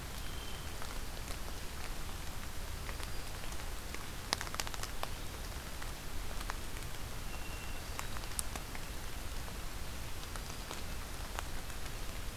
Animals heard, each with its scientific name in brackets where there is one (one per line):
Hermit Thrush (Catharus guttatus)